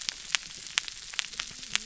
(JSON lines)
{"label": "biophony", "recorder": "SoundTrap 300"}